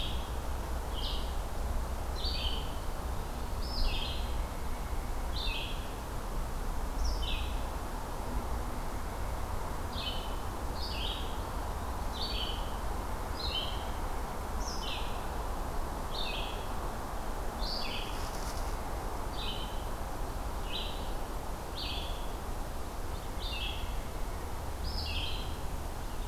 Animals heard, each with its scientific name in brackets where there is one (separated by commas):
Eastern Wood-Pewee (Contopus virens), Red-eyed Vireo (Vireo olivaceus)